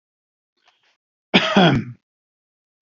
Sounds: Cough